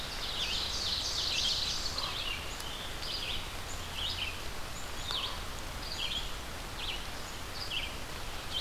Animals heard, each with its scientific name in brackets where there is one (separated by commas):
Ovenbird (Seiurus aurocapilla), Black-capped Chickadee (Poecile atricapillus), Scarlet Tanager (Piranga olivacea), Red-eyed Vireo (Vireo olivaceus), Common Raven (Corvus corax)